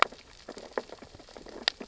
{"label": "biophony, sea urchins (Echinidae)", "recorder": "SoundTrap 600 or HydroMoth"}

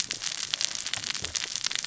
{"label": "biophony, cascading saw", "recorder": "SoundTrap 600 or HydroMoth"}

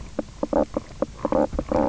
{"label": "biophony, knock croak", "recorder": "SoundTrap 300"}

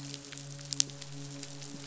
{"label": "biophony, midshipman", "recorder": "SoundTrap 500"}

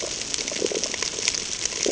{"label": "ambient", "recorder": "HydroMoth"}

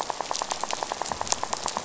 {"label": "biophony, rattle", "recorder": "SoundTrap 500"}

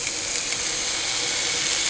{"label": "anthrophony, boat engine", "recorder": "HydroMoth"}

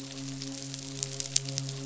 {"label": "biophony, midshipman", "recorder": "SoundTrap 500"}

